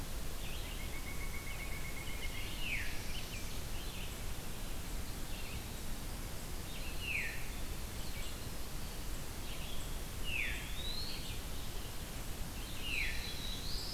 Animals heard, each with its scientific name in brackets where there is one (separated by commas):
Veery (Catharus fuscescens), Winter Wren (Troglodytes hiemalis), Pileated Woodpecker (Dryocopus pileatus), Red-eyed Vireo (Vireo olivaceus), Black-throated Blue Warbler (Setophaga caerulescens), Eastern Wood-Pewee (Contopus virens)